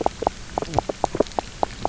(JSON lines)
{"label": "biophony, knock croak", "recorder": "SoundTrap 300"}